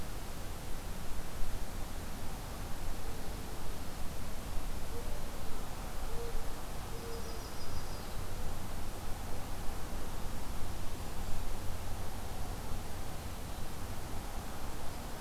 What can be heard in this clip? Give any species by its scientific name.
Zenaida macroura, Setophaga coronata, Regulus satrapa